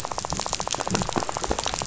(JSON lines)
{"label": "biophony, rattle", "recorder": "SoundTrap 500"}